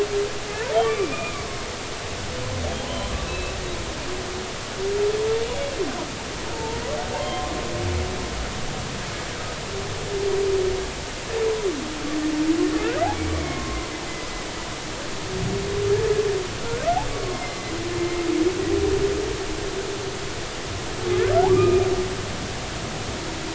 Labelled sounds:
0.5	1.5	humpback whale, 0.83 to 2.5 kHz
2.9	3.5	humpback whale, 0.93 to 3.2 kHz
6.5	7.5	humpback whale, 0.83 to 2.2 kHz
13.3	13.9	humpback whale, 0.99 to 2.3 kHz
17.1	18.2	humpback whale, 1.0 to 4.5 kHz
21.5	21.9	humpback whale, 1.1 to 2.5 kHz

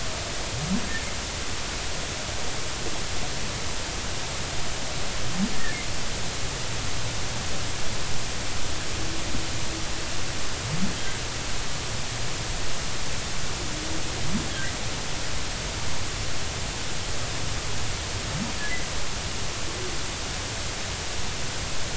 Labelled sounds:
14.5	14.7	humpback whale, 1.5 to 2.0 kHz

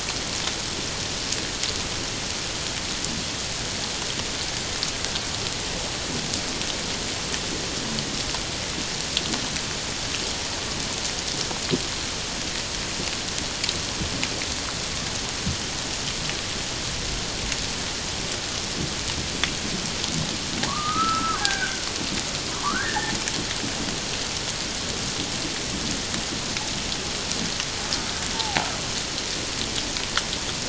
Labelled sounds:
20.6	21.9	killer whale, Bigg's (transient), 0.78 to 1.7 kHz
22.6	23.1	killer whale, Bigg's (transient), 0.84 to 1.9 kHz
28.3	28.6	killer whale, Bigg's (transient), 0.78 to 0.94 kHz

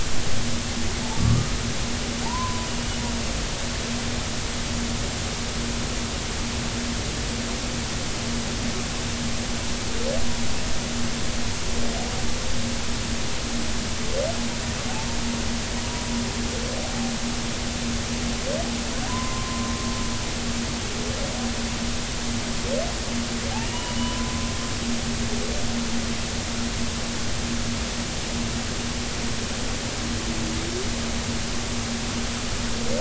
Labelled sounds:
1.2	1.6	humpback whale, 1.1 to 1.3 kHz
2.2	2.7	humpback whale, 0.80 to 1.1 kHz
20.1	20.7	humpback whale, 0.93 to 1.1 kHz
23.7	24.3	humpback whale, 0.93 to 1.1 kHz

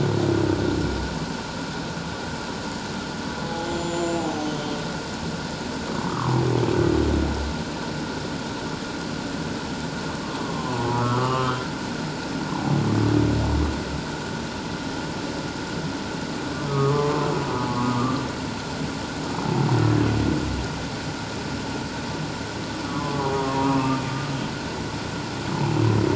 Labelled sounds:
3.6	4.8	humpback whale, 0.78 to 7.4 kHz
6.0	6.4	humpback whale, 0.94 to 1.4 kHz
10.4	12.8	humpback whale, 0.78 to 3.2 kHz
16.7	17.3	humpback whale, 0.97 to 1.3 kHz
17.7	18.2	humpback whale, 0.97 to 1.3 kHz
22.8	24.0	humpback whale, 0.91 to 1.4 kHz
25.5	25.8	humpback whale, 0.78 to 1.1 kHz

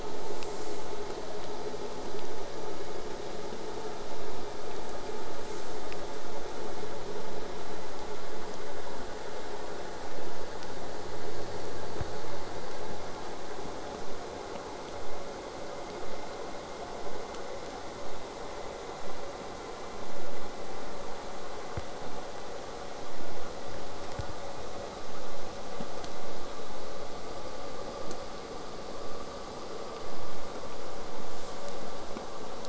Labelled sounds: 1.0	6.0	vessel noise, 0.04 to 8.0 kHz

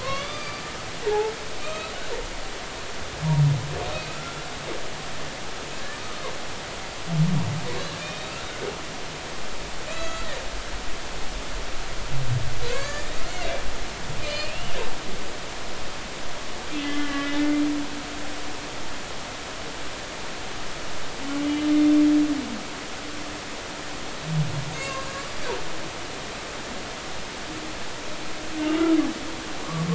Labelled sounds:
0.0	1.3	humpback whale, 0.80 to 4.8 kHz
1.6	1.9	humpback whale, 1.2 to 2.7 kHz
3.9	4.5	humpback whale, 2.5 to 3.5 kHz
8.0	8.3	humpback whale, 2.3 to 3.9 kHz
9.9	10.3	humpback whale, 1.2 to 7.4 kHz
12.7	14.8	humpback whale, 1.0 to 4.8 kHz
16.8	17.4	humpback whale, 1.6 to 3.3 kHz
24.7	25.3	humpback whale, 0.99 to 5.0 kHz
28.6	28.8	humpback whale, 2.7 to 2.9 kHz

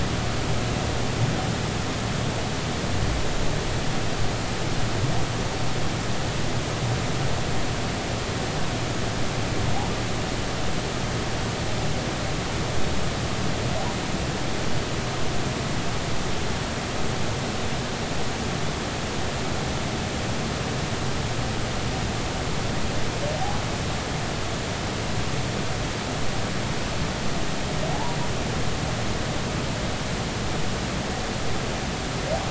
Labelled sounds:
27.9	28.2	humpback whale, 0.80 to 1.2 kHz

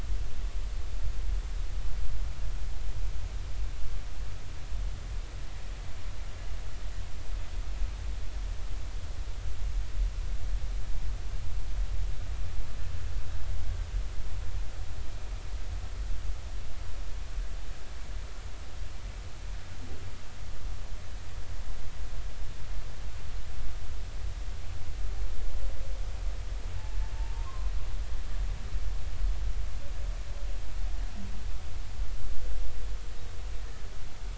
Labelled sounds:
27.4	27.7	humpback whale, 0.99 to 1.1 kHz

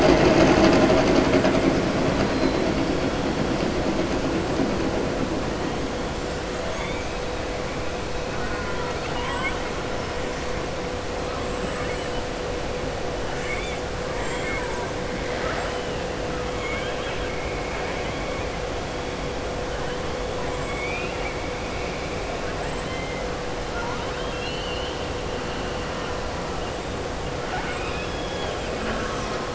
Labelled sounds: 8.3	9.6	killer whale, southern resident, 0.94 to 4.4 kHz
11.6	12.1	killer whale, southern resident, 1.2 to 3.0 kHz
13.3	13.8	killer whale, southern resident, 1.2 to 3.6 kHz
14.1	14.8	killer whale, southern resident, 0.91 to 3.3 kHz
16.5	17.3	killer whale, southern resident, 1.1 to 3.4 kHz
20.6	21.4	killer whale, southern resident, 1.4 to 3.7 kHz
22.6	23.2	killer whale, southern resident, 1.8 to 3.9 kHz
23.9	25.0	killer whale, southern resident, 2.7 to 4.6 kHz
27.4	28.6	killer whale, southern resident, 0.76 to 3.8 kHz

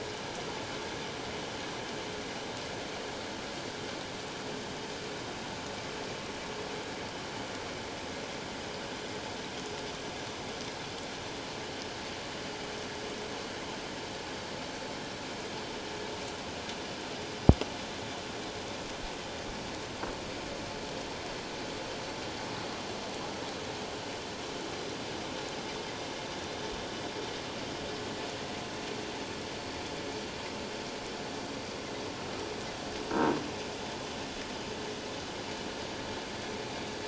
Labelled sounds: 33.1	33.4	croaking sound likely from a nearby submerged object, 1.5 to 1.6 kHz

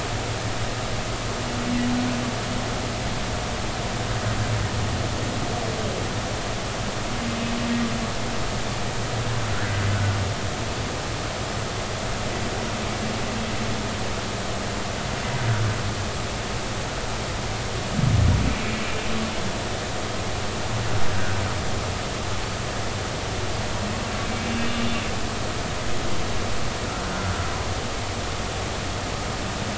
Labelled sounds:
9.9	10.2	humpback whale, 1.4 to 1.5 kHz
21.1	21.4	humpback whale, 1.4 to 1.7 kHz
24.7	24.9	humpback whale, 2.8 to 2.9 kHz

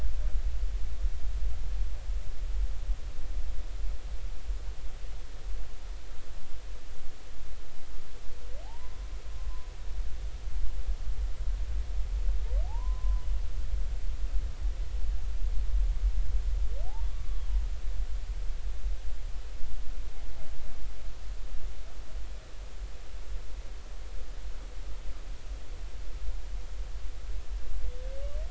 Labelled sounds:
8.6	9.0	humpback whale, 0.80 to 1.1 kHz
12.6	13.2	humpback whale, 0.80 to 1.1 kHz
17.1	17.5	humpback whale, 1.1 to 1.2 kHz

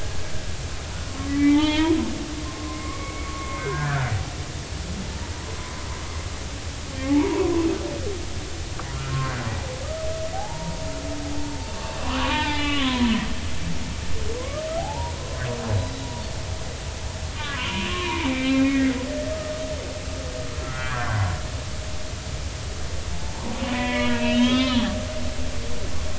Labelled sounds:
1.3	4.1	humpback whale, 0.83 to 3.5 kHz
5.3	5.7	humpback whale, 0.93 to 1.1 kHz
7.1	7.7	humpback whale, 0.80 to 1.2 kHz
10.3	10.9	humpback whale, 0.80 to 0.99 kHz
11.5	11.7	humpback whale, 0.86 to 0.96 kHz
12.0	13.1	humpback whale, 0.83 to 4.2 kHz
14.4	15.1	humpback whale, 0.80 to 1.3 kHz
17.4	18.9	humpback whale, 0.80 to 3.2 kHz
20.6	21.2	humpback whale, 1.2 to 1.8 kHz
23.1	24.9	humpback whale, 0.80 to 4.2 kHz

